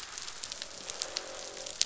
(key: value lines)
label: biophony, croak
recorder: SoundTrap 500